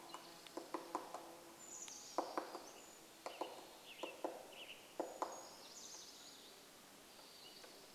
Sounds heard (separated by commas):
warbler song, Townsend's Solitaire call, Spotted Towhee song, insect buzz, MacGillivray's Warbler song, Chestnut-backed Chickadee call, woodpecker drumming, Brown Creeper song, Western Tanager song